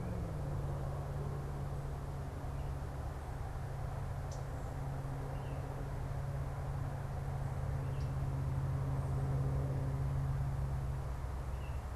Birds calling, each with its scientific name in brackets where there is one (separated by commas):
Common Yellowthroat (Geothlypis trichas), Baltimore Oriole (Icterus galbula)